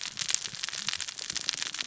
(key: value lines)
label: biophony, cascading saw
recorder: SoundTrap 600 or HydroMoth